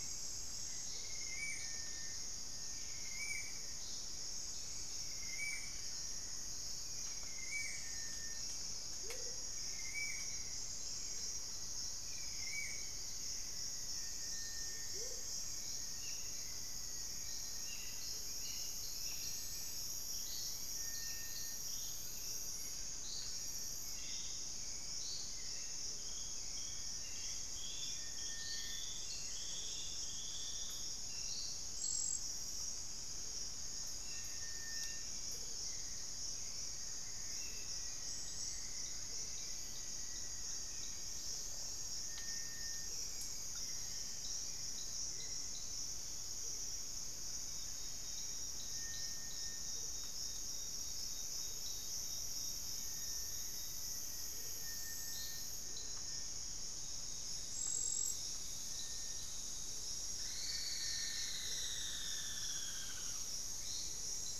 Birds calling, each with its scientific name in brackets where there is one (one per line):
Hauxwell's Thrush (Turdus hauxwelli)
Rufous-fronted Antthrush (Formicarius rufifrons)
Plain-brown Woodcreeper (Dendrocincla fuliginosa)
Wing-barred Piprites (Piprites chloris)
Spot-winged Antshrike (Pygiptila stellaris)
Black-faced Antthrush (Formicarius analis)
Amazonian Motmot (Momotus momota)
unidentified bird
Elegant Woodcreeper (Xiphorhynchus elegans)